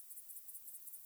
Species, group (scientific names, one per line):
Tettigonia viridissima
Orthoptera